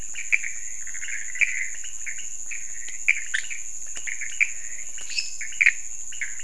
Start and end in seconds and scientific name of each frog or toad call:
0.0	6.4	Leptodactylus podicipinus
0.0	6.4	Pithecopus azureus
4.4	5.3	Physalaemus albonotatus
5.0	5.5	Dendropsophus minutus